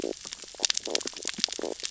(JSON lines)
{"label": "biophony, stridulation", "recorder": "SoundTrap 600 or HydroMoth"}